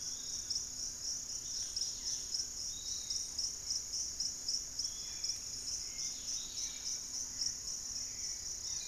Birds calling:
Dusky-capped Greenlet (Pachysylvia hypoxantha), Piratic Flycatcher (Legatus leucophaius), Fasciated Antshrike (Cymbilaimus lineatus), Hauxwell's Thrush (Turdus hauxwelli), Barred Forest-Falcon (Micrastur ruficollis)

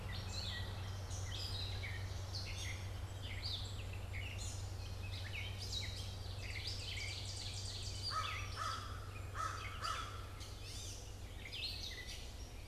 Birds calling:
Ovenbird (Seiurus aurocapilla), Gray Catbird (Dumetella carolinensis), American Crow (Corvus brachyrhynchos)

